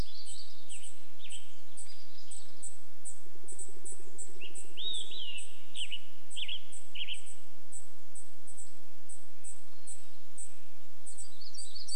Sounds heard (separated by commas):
unidentified bird chip note, woodpecker drumming, warbler song, Olive-sided Flycatcher song, Red-breasted Nuthatch song, Western Tanager song